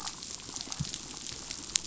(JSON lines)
{"label": "biophony, chatter", "recorder": "SoundTrap 500"}